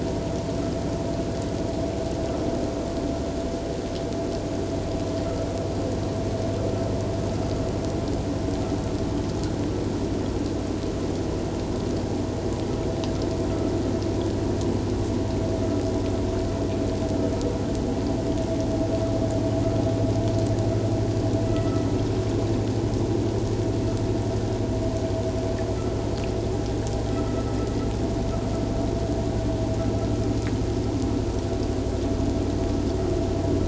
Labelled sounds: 21.5	21.8	vessel noise, 1.9 to 2.0 kHz
27.2	27.5	vessel noise, 1.2 to 1.4 kHz

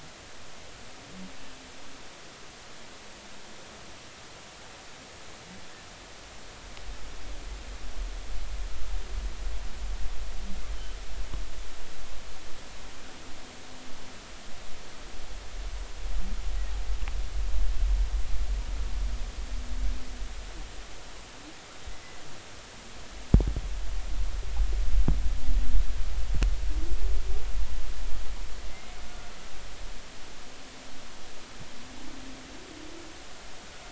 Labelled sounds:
28.7	29.3	humpback whale, 1.4 to 2.2 kHz

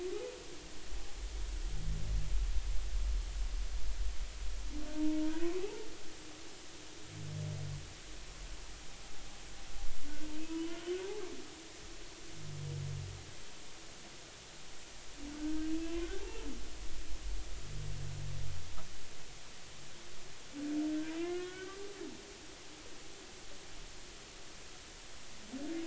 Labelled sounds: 4.9	5.2	humpback whale, 0.90 to 0.96 kHz
5.6	5.9	humpback whale, 0.80 to 0.96 kHz
10.5	10.8	humpback whale, 0.93 to 3.0 kHz
15.4	16.4	humpback whale, 0.80 to 2.8 kHz
21.1	22.2	humpback whale, 1.0 to 2.3 kHz

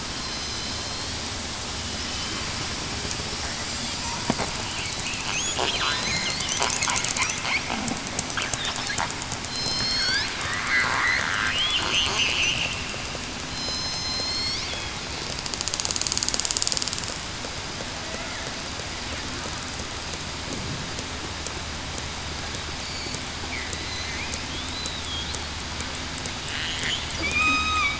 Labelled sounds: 2.1	2.4	killer whale, southern resident, 3.0 to 3.1 kHz
5.7	6.4	killer whale, southern resident, 4.0 to 4.5 kHz
9.4	10.2	killer whale, southern resident, 3.1 to 5.8 kHz
12.5	12.8	killer whale, southern resident, 2.6 to 2.8 kHz
13.5	14.6	killer whale, southern resident, 3.1 to 8.0 kHz
27.2	27.9	killer whale, southern resident, 1.1 to 7.6 kHz

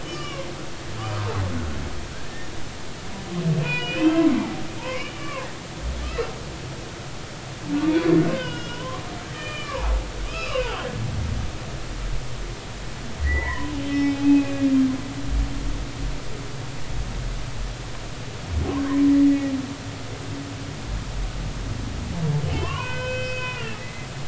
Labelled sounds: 0.0	0.5	humpback whale, 0.96 to 6.0 kHz
2.2	2.5	humpback whale, 1.7 to 1.9 kHz
3.5	5.5	humpback whale, 0.80 to 5.0 kHz
6.0	6.3	humpback whale, 1.2 to 1.4 kHz
8.3	9.9	humpback whale, 0.80 to 3.4 kHz
10.3	10.8	humpback whale, 0.80 to 4.0 kHz
13.2	14.9	humpback whale, 0.80 to 5.4 kHz
22.5	23.8	humpback whale, 0.90 to 4.7 kHz

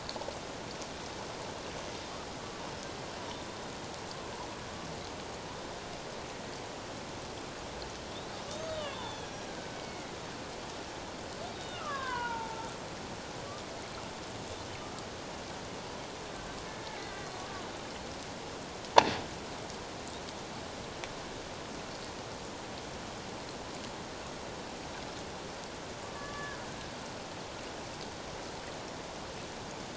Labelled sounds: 8.7	10.1	killer whale, Bigg's (transient), 0.81 to 5.8 kHz
11.5	12.6	killer whale, Bigg's (transient), 0.84 to 3.8 kHz
17.0	17.6	killer whale, Bigg's (transient), 1.1 to 2.1 kHz
26.1	26.6	killer whale, Bigg's (transient), 1.1 to 1.8 kHz

